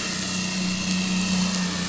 {"label": "anthrophony, boat engine", "recorder": "SoundTrap 500"}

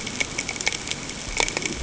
{"label": "ambient", "recorder": "HydroMoth"}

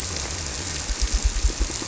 {"label": "biophony", "recorder": "SoundTrap 300"}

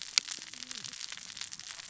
{"label": "biophony, cascading saw", "recorder": "SoundTrap 600 or HydroMoth"}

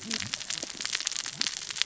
{"label": "biophony, cascading saw", "recorder": "SoundTrap 600 or HydroMoth"}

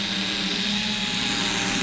{"label": "anthrophony, boat engine", "recorder": "SoundTrap 500"}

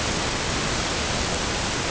{"label": "ambient", "recorder": "HydroMoth"}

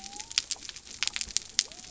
{"label": "biophony", "recorder": "SoundTrap 300"}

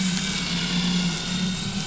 {"label": "anthrophony, boat engine", "recorder": "SoundTrap 500"}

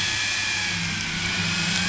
{"label": "anthrophony, boat engine", "recorder": "SoundTrap 500"}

